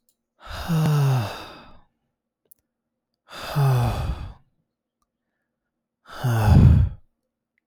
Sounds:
Sigh